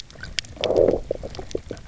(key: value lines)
label: biophony, low growl
recorder: SoundTrap 300